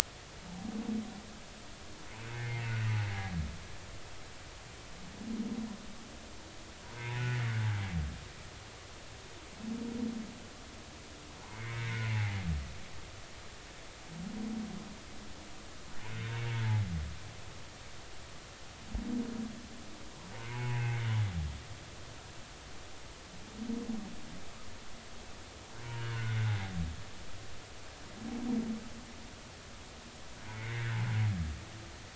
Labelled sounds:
2.3	2.8	humpback whale, 2.0 to 2.2 kHz
7.0	7.3	humpback whale, 0.80 to 2.6 kHz
11.4	12.4	humpback whale, 0.80 to 2.4 kHz
16.0	16.3	humpback whale, 2.1 to 2.2 kHz
20.5	21.0	humpback whale, 0.80 to 2.7 kHz
25.9	26.4	humpback whale, 1.3 to 3.0 kHz
30.5	30.9	humpback whale, 1.8 to 2.3 kHz

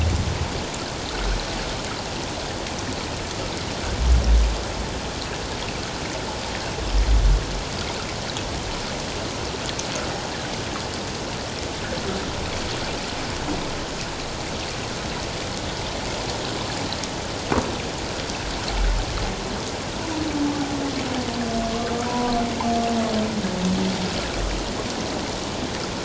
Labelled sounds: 22.1	22.3	humpback whale, 0.94 to 1.0 kHz

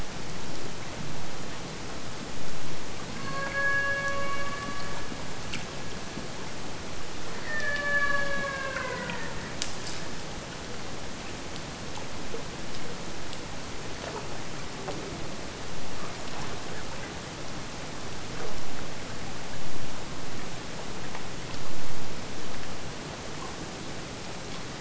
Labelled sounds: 3.2	5.6	killer whale, Bigg's (transient), AT1 transient, 0.45 to 5.1 kHz
7.4	9.4	killer whale, Bigg's (transient), AT1 transient, 0.43 to 4.7 kHz

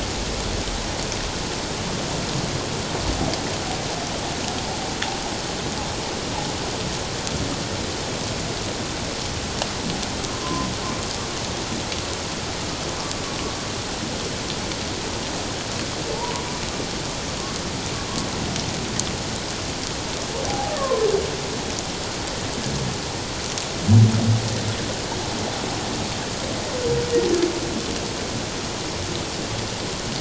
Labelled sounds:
10.3	10.7	humpback whale, 0.97 to 1.1 kHz
16.3	16.6	humpback whale, 0.94 to 1.1 kHz
20.5	21.1	humpback whale, 0.78 to 1.3 kHz

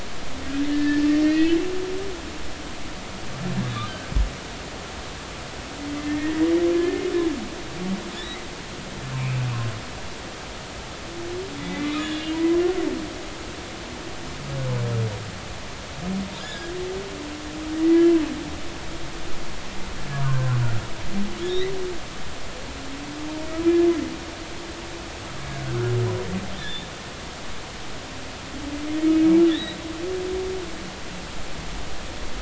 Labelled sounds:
0.7	1.6	humpback whale, 1.6 to 2.9 kHz
6.0	6.4	humpback whale, 1.7 to 2.2 kHz
6.7	7.0	humpback whale, 1.7 to 1.9 kHz
8.1	8.4	humpback whale, 1.7 to 4.0 kHz
9.1	9.5	humpback whale, 2.2 to 2.7 kHz
11.6	12.6	humpback whale, 0.93 to 3.0 kHz
16.4	16.7	humpback whale, 1.5 to 5.2 kHz
17.7	18.1	humpback whale, 1.8 to 2.1 kHz
20.1	20.6	humpback whale, 0.99 to 1.6 kHz
21.4	21.7	humpback whale, 3.2 to 4.1 kHz
25.6	25.9	humpback whale, 1.2 to 1.7 kHz
27.6	27.9	humpback whale, 3.3 to 3.7 kHz
29.5	29.8	humpback whale, 1.6 to 4.0 kHz

